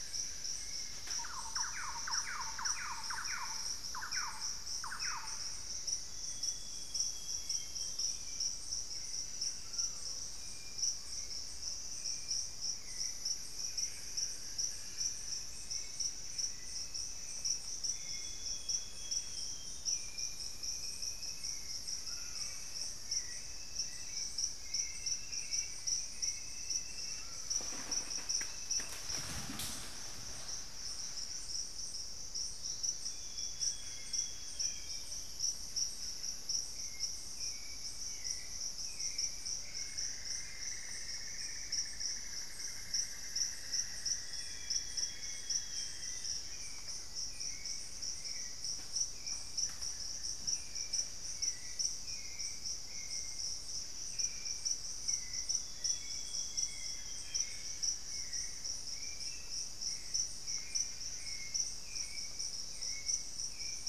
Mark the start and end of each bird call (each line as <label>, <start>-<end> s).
Solitary Black Cacique (Cacicus solitarius), 0.0-1.2 s
Hauxwell's Thrush (Turdus hauxwelli), 0.0-28.9 s
Thrush-like Wren (Campylorhynchus turdinus), 0.9-5.7 s
Lemon-throated Barbet (Eubucco richardsoni), 1.5-5.9 s
Black-faced Antthrush (Formicarius analis), 4.6-6.8 s
Amazonian Grosbeak (Cyanoloxia rothschildii), 5.9-8.3 s
Screaming Piha (Lipaugus vociferans), 9.5-10.3 s
Solitary Black Cacique (Cacicus solitarius), 13.0-26.1 s
Amazonian Grosbeak (Cyanoloxia rothschildii), 17.8-19.9 s
Elegant Woodcreeper (Xiphorhynchus elegans), 21.2-25.1 s
Screaming Piha (Lipaugus vociferans), 22.0-22.5 s
Black-faced Antthrush (Formicarius analis), 25.6-28.2 s
Screaming Piha (Lipaugus vociferans), 27.1-27.8 s
Amazonian Grosbeak (Cyanoloxia rothschildii), 32.8-35.1 s
Hauxwell's Thrush (Turdus hauxwelli), 32.8-63.9 s
Solitary Black Cacique (Cacicus solitarius), 33.3-40.4 s
Lemon-throated Barbet (Eubucco richardsoni), 33.7-35.4 s
Cinnamon-throated Woodcreeper (Dendrexetastes rufigula), 39.4-46.4 s
Amazonian Grosbeak (Cyanoloxia rothschildii), 44.2-46.4 s
Black-faced Antthrush (Formicarius analis), 45.8-48.1 s
Amazonian Grosbeak (Cyanoloxia rothschildii), 55.4-57.8 s
Solitary Black Cacique (Cacicus solitarius), 57.0-63.9 s